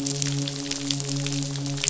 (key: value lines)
label: biophony, midshipman
recorder: SoundTrap 500